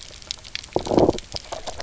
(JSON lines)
{"label": "biophony, knock croak", "recorder": "SoundTrap 300"}